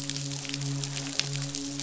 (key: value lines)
label: biophony, midshipman
recorder: SoundTrap 500